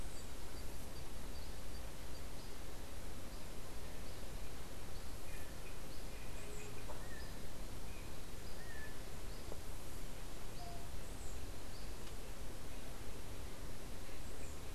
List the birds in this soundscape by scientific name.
Leptotila verreauxi